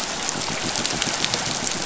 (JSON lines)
{"label": "biophony", "recorder": "SoundTrap 500"}